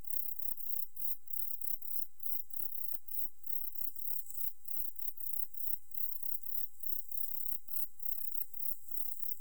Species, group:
Platycleis sabulosa
Orthoptera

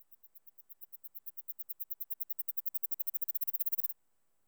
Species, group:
Platystolus martinezii
Orthoptera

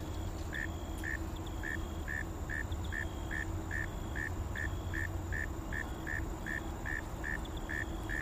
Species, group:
Neocurtilla hexadactyla
Orthoptera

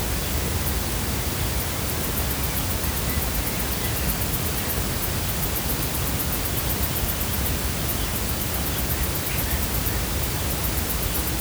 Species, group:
Tettigettalna argentata
Cicadidae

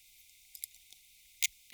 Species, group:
Poecilimon thoracicus
Orthoptera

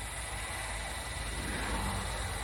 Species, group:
Psaltoda harrisii
Cicadidae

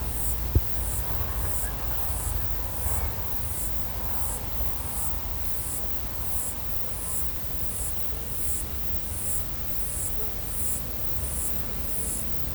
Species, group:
Cicadatra atra
Cicadidae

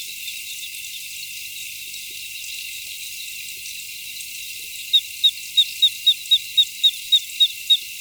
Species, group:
Eugryllodes escalerae
Orthoptera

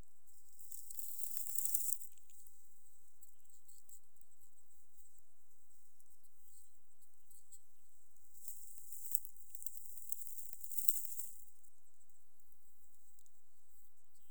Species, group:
Ctenodecticus ramburi
Orthoptera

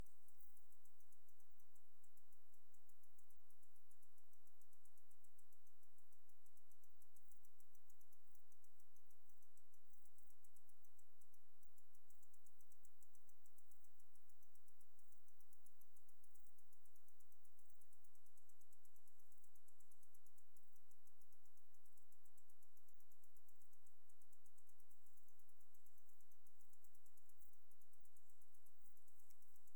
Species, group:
Poecilimon jonicus
Orthoptera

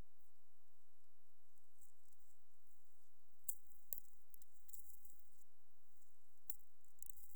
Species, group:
Psophus stridulus
Orthoptera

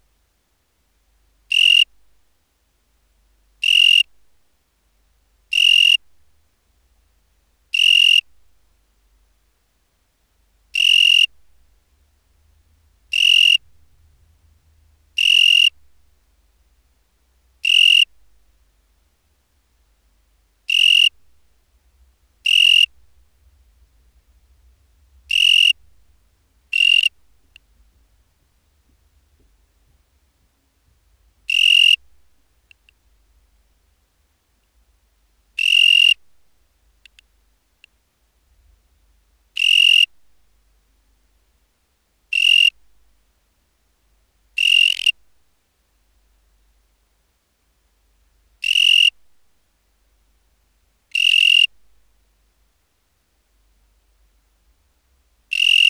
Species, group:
Oecanthus pellucens
Orthoptera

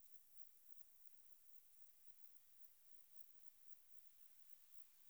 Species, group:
Metrioptera saussuriana
Orthoptera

